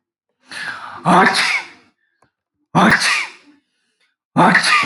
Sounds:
Sneeze